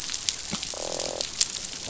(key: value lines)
label: biophony, croak
recorder: SoundTrap 500